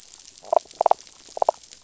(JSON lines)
{"label": "biophony, damselfish", "recorder": "SoundTrap 500"}